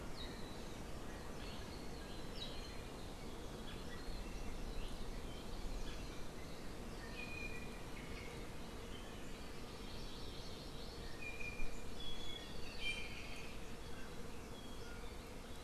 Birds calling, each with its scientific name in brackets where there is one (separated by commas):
Hawaii Amakihi (Chlorodrepanis virens), Iiwi (Drepanis coccinea)